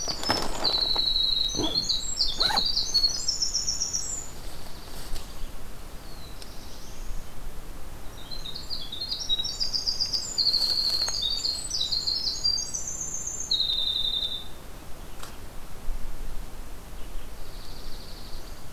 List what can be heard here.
Winter Wren, Dark-eyed Junco, Black-throated Blue Warbler